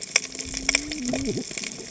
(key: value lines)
label: biophony, cascading saw
recorder: HydroMoth